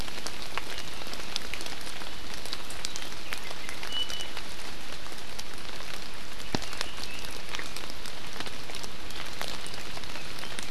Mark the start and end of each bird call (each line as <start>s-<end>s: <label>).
2.8s-4.4s: Iiwi (Drepanis coccinea)